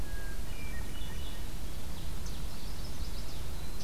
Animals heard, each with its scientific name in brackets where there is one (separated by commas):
Chestnut-sided Warbler (Setophaga pensylvanica), Hermit Thrush (Catharus guttatus), Red-eyed Vireo (Vireo olivaceus)